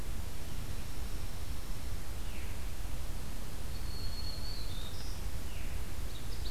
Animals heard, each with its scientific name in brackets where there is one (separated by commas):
Dark-eyed Junco (Junco hyemalis), Black-throated Green Warbler (Setophaga virens), Veery (Catharus fuscescens), Ovenbird (Seiurus aurocapilla)